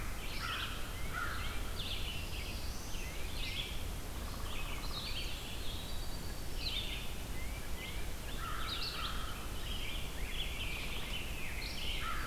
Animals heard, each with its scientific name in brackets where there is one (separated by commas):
Tufted Titmouse (Baeolophus bicolor), Rose-breasted Grosbeak (Pheucticus ludovicianus), Downy Woodpecker (Dryobates pubescens), American Crow (Corvus brachyrhynchos), Black-throated Blue Warbler (Setophaga caerulescens), Eastern Wood-Pewee (Contopus virens), Red-eyed Vireo (Vireo olivaceus)